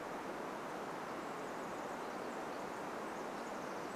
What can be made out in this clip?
Pacific Wren song